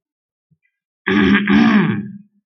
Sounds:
Throat clearing